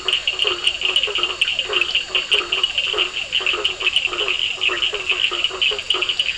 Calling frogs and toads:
Boana faber, Elachistocleis bicolor, Physalaemus cuvieri, Sphaenorhynchus surdus, Scinax perereca, Boana bischoffi

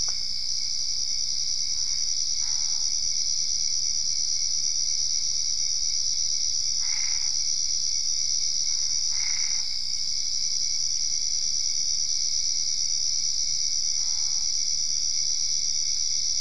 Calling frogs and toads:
Boana albopunctata

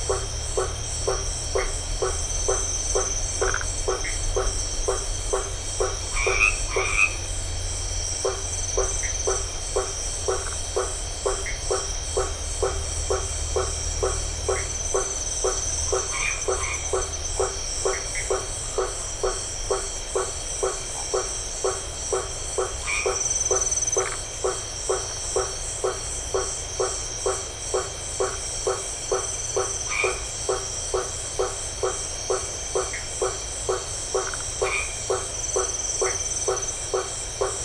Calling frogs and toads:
Boana faber, Phyllomedusa distincta, Dendropsophus elegans, Boana albomarginata

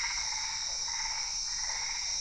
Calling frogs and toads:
Boana albopunctata, Physalaemus cuvieri

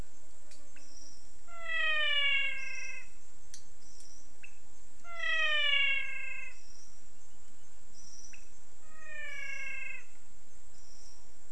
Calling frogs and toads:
Leptodactylus podicipinus, Physalaemus albonotatus

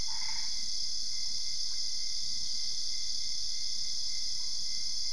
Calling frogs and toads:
Boana albopunctata

